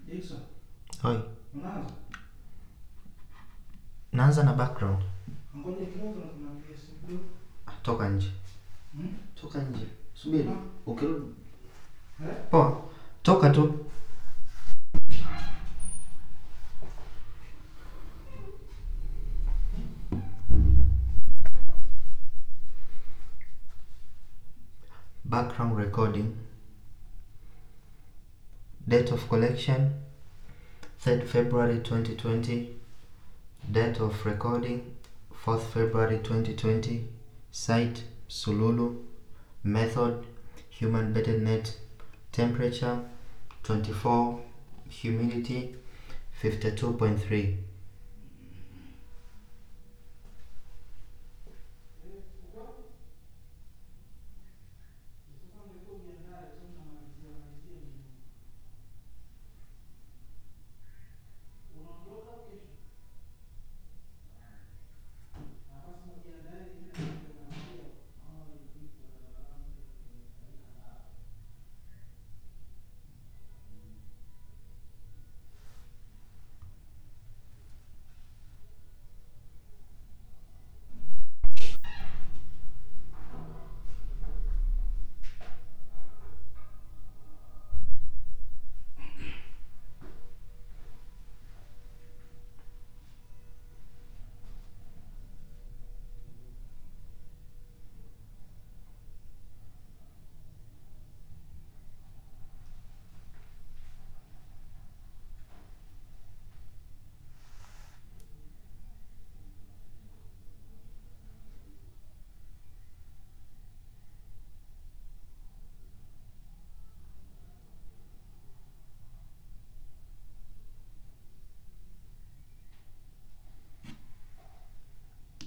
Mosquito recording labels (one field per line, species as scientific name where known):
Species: no mosquito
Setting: cup